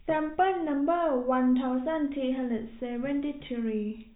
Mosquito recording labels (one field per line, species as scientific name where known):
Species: no mosquito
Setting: cup